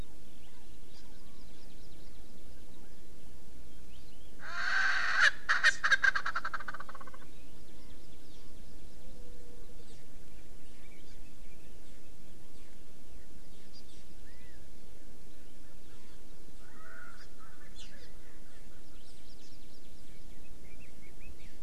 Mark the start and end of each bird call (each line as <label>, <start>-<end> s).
Chinese Hwamei (Garrulax canorus), 0.0-1.5 s
Hawaii Amakihi (Chlorodrepanis virens), 1.1-2.6 s
Erckel's Francolin (Pternistis erckelii), 4.4-7.2 s
Hawaii Amakihi (Chlorodrepanis virens), 7.6-9.0 s
Hawaii Amakihi (Chlorodrepanis virens), 11.0-11.2 s
Hawaii Amakihi (Chlorodrepanis virens), 13.7-13.8 s
Chinese Hwamei (Garrulax canorus), 14.2-14.6 s
Erckel's Francolin (Pternistis erckelii), 16.6-19.0 s
Hawaii Amakihi (Chlorodrepanis virens), 17.2-17.3 s
Hawaii Amakihi (Chlorodrepanis virens), 17.8-18.1 s
Hawaii Amakihi (Chlorodrepanis virens), 18.9-20.4 s
Red-billed Leiothrix (Leiothrix lutea), 20.1-21.6 s